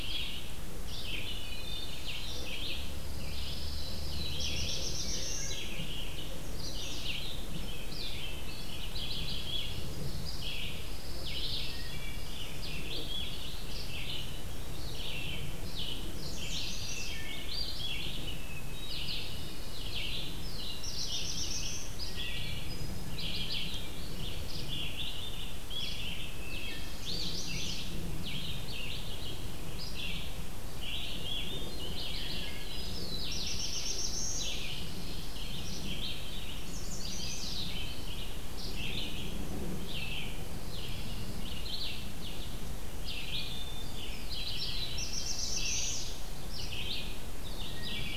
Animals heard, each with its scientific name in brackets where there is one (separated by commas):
Chestnut-sided Warbler (Setophaga pensylvanica), Hermit Thrush (Catharus guttatus), Black-throated Blue Warbler (Setophaga caerulescens), Pine Warbler (Setophaga pinus), Wood Thrush (Hylocichla mustelina), Red-eyed Vireo (Vireo olivaceus)